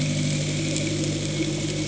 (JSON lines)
{"label": "anthrophony, boat engine", "recorder": "HydroMoth"}